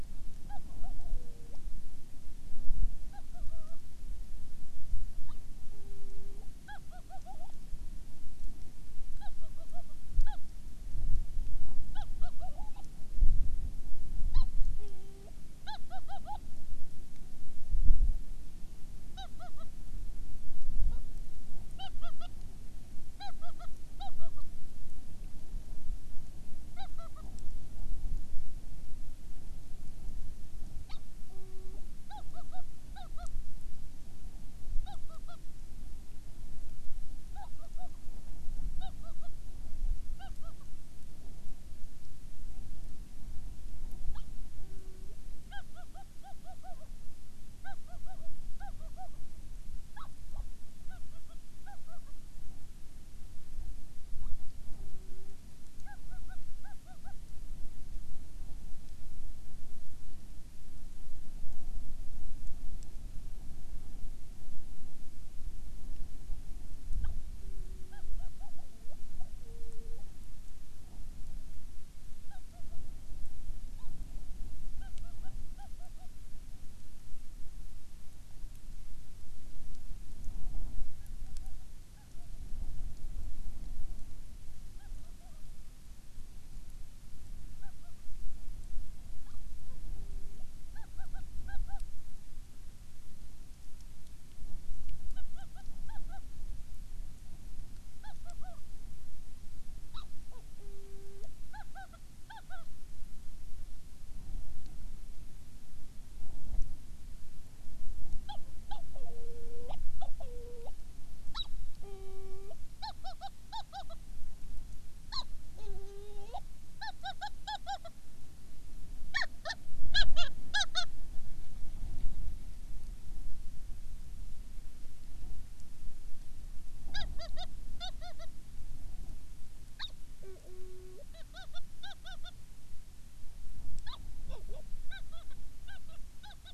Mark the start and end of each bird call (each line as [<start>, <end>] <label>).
[0.44, 1.64] Hawaiian Petrel (Pterodroma sandwichensis)
[3.14, 3.74] Hawaiian Petrel (Pterodroma sandwichensis)
[5.24, 7.54] Hawaiian Petrel (Pterodroma sandwichensis)
[9.14, 10.44] Hawaiian Petrel (Pterodroma sandwichensis)
[11.84, 12.84] Hawaiian Petrel (Pterodroma sandwichensis)
[14.24, 16.44] Hawaiian Petrel (Pterodroma sandwichensis)
[19.04, 19.74] Hawaiian Petrel (Pterodroma sandwichensis)
[20.84, 21.04] Hawaiian Petrel (Pterodroma sandwichensis)
[21.74, 22.34] Hawaiian Petrel (Pterodroma sandwichensis)
[23.14, 24.44] Hawaiian Petrel (Pterodroma sandwichensis)
[26.74, 27.24] Hawaiian Petrel (Pterodroma sandwichensis)
[30.84, 33.34] Hawaiian Petrel (Pterodroma sandwichensis)
[34.84, 35.44] Hawaiian Petrel (Pterodroma sandwichensis)
[37.24, 37.94] Hawaiian Petrel (Pterodroma sandwichensis)
[38.74, 39.34] Hawaiian Petrel (Pterodroma sandwichensis)
[40.14, 40.64] Hawaiian Petrel (Pterodroma sandwichensis)
[44.04, 45.14] Hawaiian Petrel (Pterodroma sandwichensis)
[45.44, 46.94] Hawaiian Petrel (Pterodroma sandwichensis)
[47.54, 49.14] Hawaiian Petrel (Pterodroma sandwichensis)
[49.84, 50.44] Hawaiian Petrel (Pterodroma sandwichensis)
[50.84, 52.14] Hawaiian Petrel (Pterodroma sandwichensis)
[54.14, 55.34] Hawaiian Petrel (Pterodroma sandwichensis)
[55.84, 57.14] Hawaiian Petrel (Pterodroma sandwichensis)
[66.94, 70.14] Hawaiian Petrel (Pterodroma sandwichensis)
[72.24, 72.84] Hawaiian Petrel (Pterodroma sandwichensis)
[73.74, 73.94] Hawaiian Petrel (Pterodroma sandwichensis)
[74.74, 76.04] Hawaiian Petrel (Pterodroma sandwichensis)
[80.94, 82.44] Hawaiian Petrel (Pterodroma sandwichensis)
[84.74, 85.44] Hawaiian Petrel (Pterodroma sandwichensis)
[87.54, 87.94] Hawaiian Petrel (Pterodroma sandwichensis)
[89.14, 90.44] Hawaiian Petrel (Pterodroma sandwichensis)
[90.74, 91.84] Hawaiian Petrel (Pterodroma sandwichensis)
[95.14, 96.24] Hawaiian Petrel (Pterodroma sandwichensis)
[98.04, 98.64] Hawaiian Petrel (Pterodroma sandwichensis)
[99.94, 102.64] Hawaiian Petrel (Pterodroma sandwichensis)
[108.24, 110.74] Hawaiian Petrel (Pterodroma sandwichensis)
[111.24, 114.04] Hawaiian Petrel (Pterodroma sandwichensis)
[115.04, 117.94] Hawaiian Petrel (Pterodroma sandwichensis)
[119.04, 120.84] Hawaiian Petrel (Pterodroma sandwichensis)
[126.84, 128.34] Hawaiian Petrel (Pterodroma sandwichensis)
[129.74, 132.34] Hawaiian Petrel (Pterodroma sandwichensis)
[133.74, 136.53] Hawaiian Petrel (Pterodroma sandwichensis)